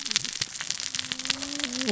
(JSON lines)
{"label": "biophony, cascading saw", "recorder": "SoundTrap 600 or HydroMoth"}